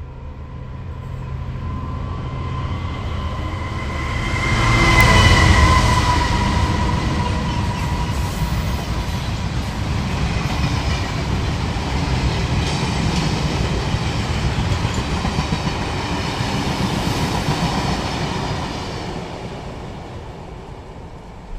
Does a car honk?
no